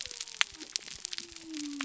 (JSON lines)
{"label": "biophony", "recorder": "SoundTrap 300"}